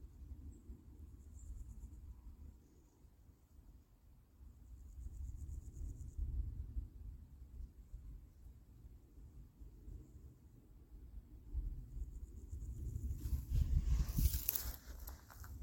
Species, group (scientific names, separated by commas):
Pseudochorthippus parallelus, Orthoptera